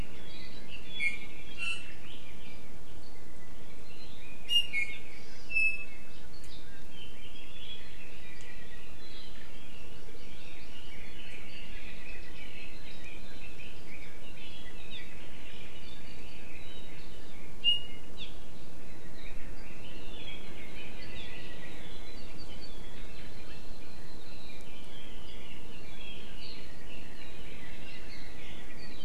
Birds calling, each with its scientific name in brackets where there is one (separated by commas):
Iiwi (Drepanis coccinea), Red-billed Leiothrix (Leiothrix lutea), Hawaii Amakihi (Chlorodrepanis virens), Apapane (Himatione sanguinea)